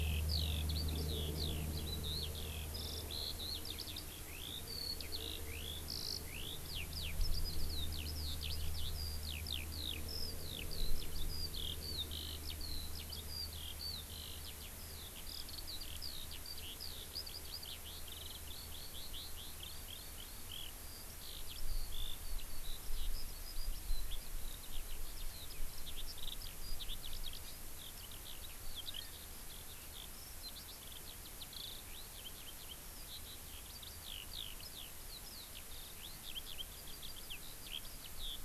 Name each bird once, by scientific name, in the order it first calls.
Alauda arvensis